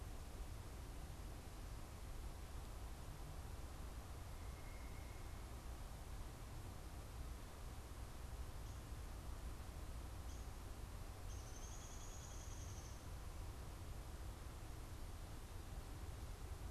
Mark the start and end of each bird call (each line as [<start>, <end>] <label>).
[4.09, 5.39] unidentified bird
[11.09, 13.39] Downy Woodpecker (Dryobates pubescens)